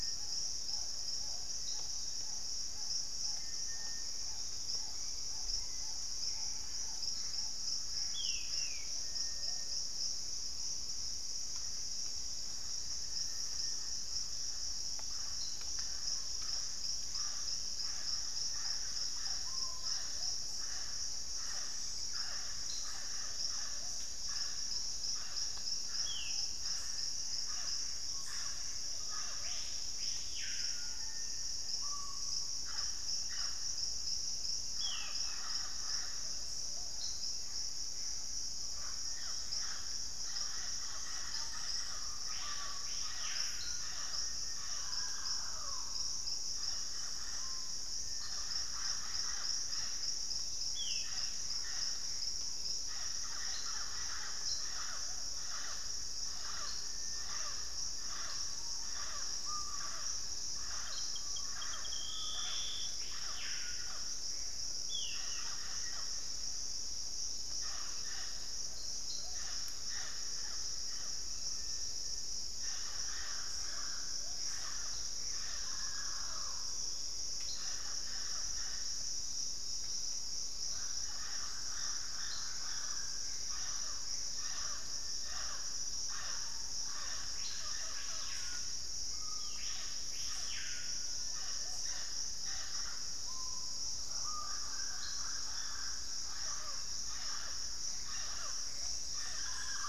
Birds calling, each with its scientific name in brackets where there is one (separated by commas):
Collared Trogon (Trogon collaris), Screaming Piha (Lipaugus vociferans), Plain-winged Antshrike (Thamnophilus schistaceus), Mealy Parrot (Amazona farinosa), Hauxwell's Thrush (Turdus hauxwelli), Thrush-like Wren (Campylorhynchus turdinus), unidentified bird, Ringed Antpipit (Corythopis torquatus), Gray Antbird (Cercomacra cinerascens), Black-faced Antthrush (Formicarius analis), Ringed Woodpecker (Celeus torquatus), Straight-billed Woodcreeper (Dendroplex picus)